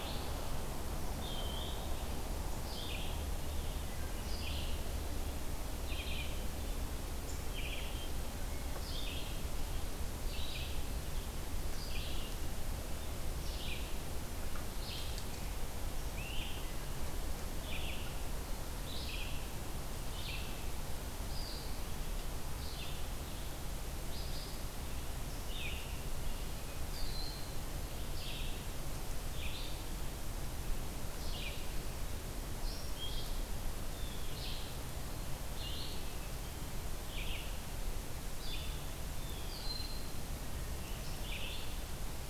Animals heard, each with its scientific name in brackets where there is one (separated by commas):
Red-eyed Vireo (Vireo olivaceus), Eastern Wood-Pewee (Contopus virens), Blue Jay (Cyanocitta cristata), Broad-winged Hawk (Buteo platypterus), Great Crested Flycatcher (Myiarchus crinitus)